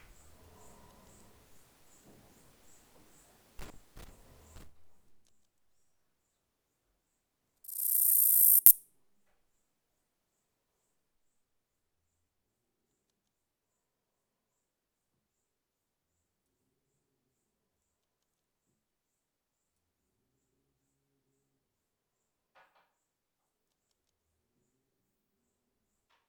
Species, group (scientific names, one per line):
Acrometopa servillea
Orthoptera